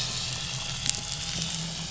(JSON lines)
{"label": "anthrophony, boat engine", "recorder": "SoundTrap 500"}